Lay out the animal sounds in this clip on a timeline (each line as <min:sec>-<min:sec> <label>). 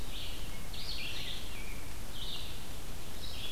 0:00.0-0:03.5 Red-eyed Vireo (Vireo olivaceus)